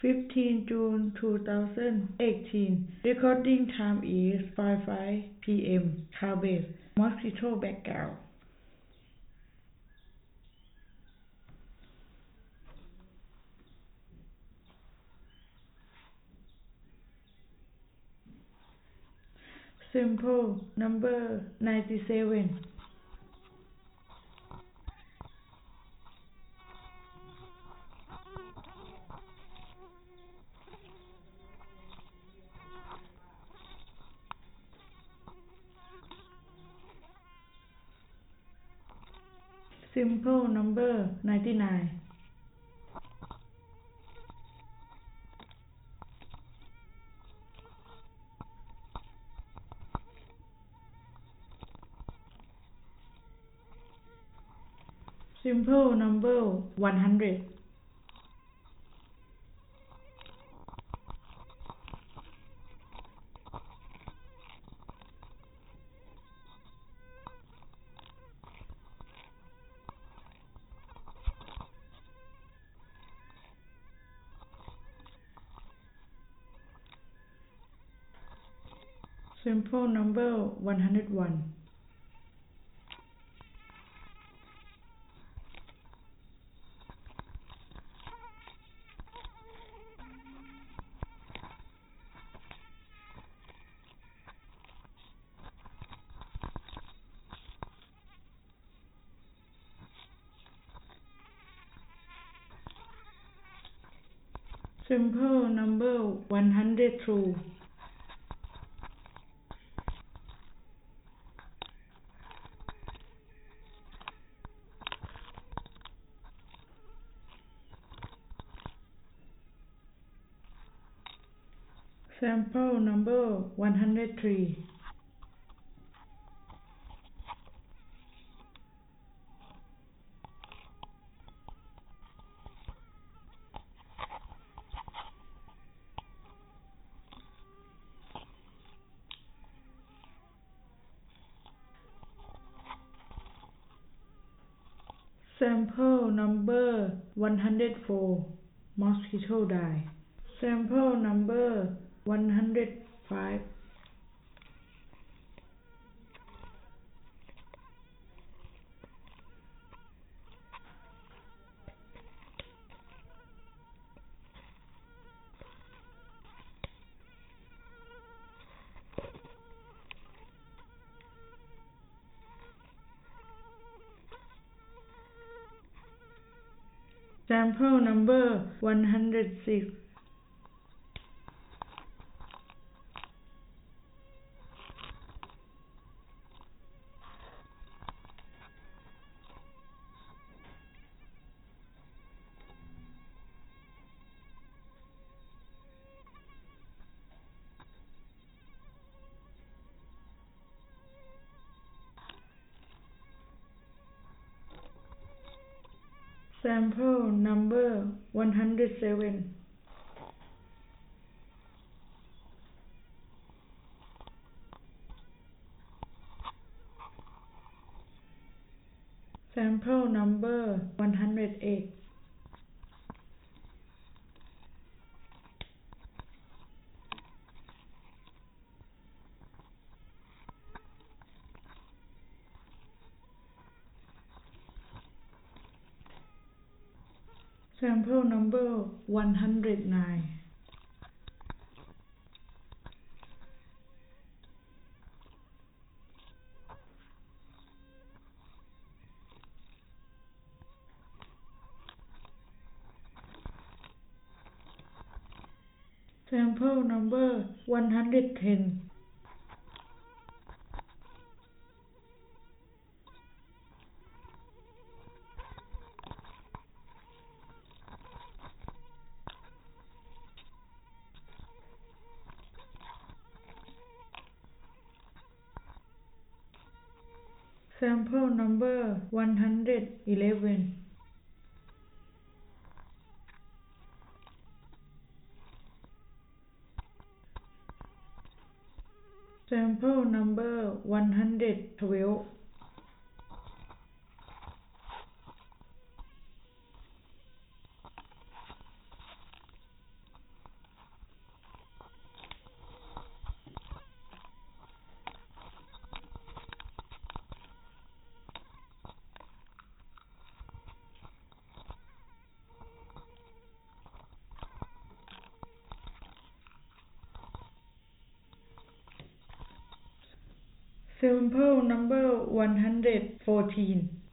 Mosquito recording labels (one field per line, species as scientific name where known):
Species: no mosquito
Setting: cup